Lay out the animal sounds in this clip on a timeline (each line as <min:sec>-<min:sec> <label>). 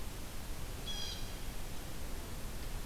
0:00.8-0:01.3 Blue Jay (Cyanocitta cristata)